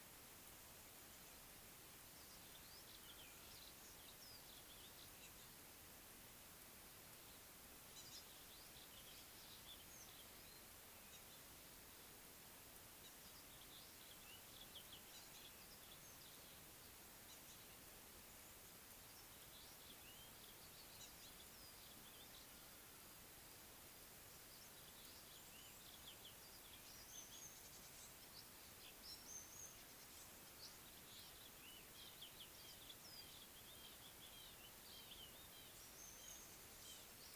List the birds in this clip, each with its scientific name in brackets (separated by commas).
Red-fronted Barbet (Tricholaema diademata), African Gray Flycatcher (Bradornis microrhynchus)